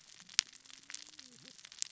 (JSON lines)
{"label": "biophony, cascading saw", "recorder": "SoundTrap 600 or HydroMoth"}